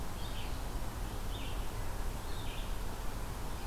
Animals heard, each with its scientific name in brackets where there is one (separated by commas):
Red-eyed Vireo (Vireo olivaceus)